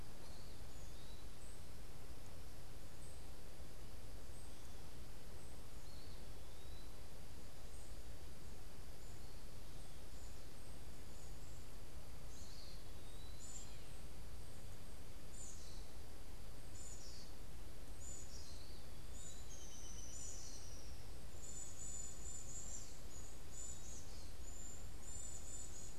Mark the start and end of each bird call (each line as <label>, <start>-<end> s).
Eastern Wood-Pewee (Contopus virens), 5.8-7.2 s
Eastern Wood-Pewee (Contopus virens), 12.3-13.6 s
Black-capped Chickadee (Poecile atricapillus), 13.3-17.2 s
Black-capped Chickadee (Poecile atricapillus), 17.8-26.0 s